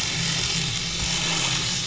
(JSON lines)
{"label": "anthrophony, boat engine", "recorder": "SoundTrap 500"}